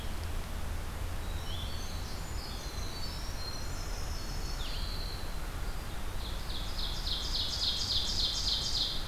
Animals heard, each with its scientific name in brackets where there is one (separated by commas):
Ovenbird (Seiurus aurocapilla), Winter Wren (Troglodytes hiemalis), Blackburnian Warbler (Setophaga fusca)